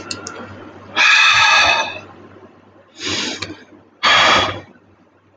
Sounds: Sigh